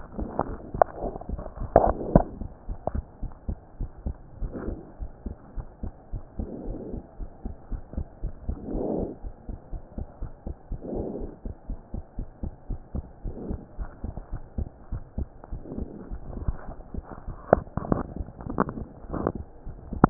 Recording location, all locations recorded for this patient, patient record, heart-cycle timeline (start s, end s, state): pulmonary valve (PV)
aortic valve (AV)+pulmonary valve (PV)+tricuspid valve (TV)+mitral valve (MV)
#Age: Child
#Sex: Male
#Height: 115.0 cm
#Weight: 18.9 kg
#Pregnancy status: False
#Murmur: Absent
#Murmur locations: nan
#Most audible location: nan
#Systolic murmur timing: nan
#Systolic murmur shape: nan
#Systolic murmur grading: nan
#Systolic murmur pitch: nan
#Systolic murmur quality: nan
#Diastolic murmur timing: nan
#Diastolic murmur shape: nan
#Diastolic murmur grading: nan
#Diastolic murmur pitch: nan
#Diastolic murmur quality: nan
#Outcome: Abnormal
#Campaign: 2015 screening campaign
0.00	3.76	unannotated
3.76	3.90	S1
3.90	4.04	systole
4.04	4.18	S2
4.18	4.38	diastole
4.38	4.52	S1
4.52	4.64	systole
4.64	4.78	S2
4.78	5.00	diastole
5.00	5.10	S1
5.10	5.24	systole
5.24	5.36	S2
5.36	5.56	diastole
5.56	5.66	S1
5.66	5.82	systole
5.82	5.92	S2
5.92	6.12	diastole
6.12	6.24	S1
6.24	6.38	systole
6.38	6.50	S2
6.50	6.66	diastole
6.66	6.80	S1
6.80	6.94	systole
6.94	7.04	S2
7.04	7.20	diastole
7.20	7.28	S1
7.28	7.44	systole
7.44	7.56	S2
7.56	7.72	diastole
7.72	7.82	S1
7.82	7.94	systole
7.94	8.08	S2
8.08	8.24	diastole
8.24	8.36	S1
8.36	8.50	systole
8.50	8.59	S2
8.59	20.10	unannotated